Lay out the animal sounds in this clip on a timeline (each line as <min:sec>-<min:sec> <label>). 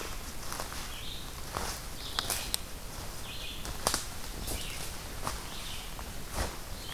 0:01.0-0:06.9 Red-eyed Vireo (Vireo olivaceus)